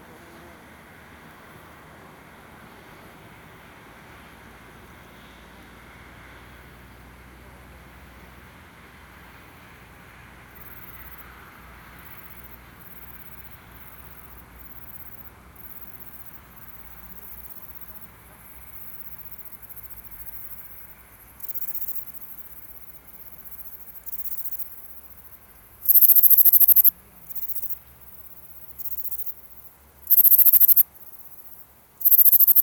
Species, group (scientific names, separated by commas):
Sorapagus catalaunicus, Orthoptera